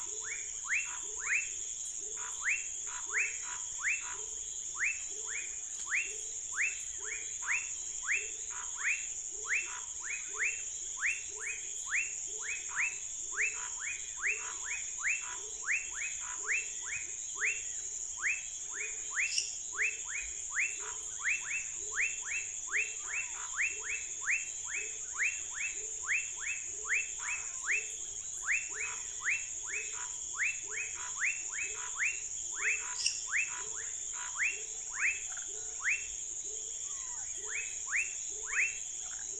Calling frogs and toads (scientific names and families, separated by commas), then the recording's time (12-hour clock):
Boana raniceps (Hylidae), Leptodactylus fuscus (Leptodactylidae), Leptodactylus labyrinthicus (Leptodactylidae), Physalaemus nattereri (Leptodactylidae), Dendropsophus minutus (Hylidae), Scinax fuscovarius (Hylidae)
8:00pm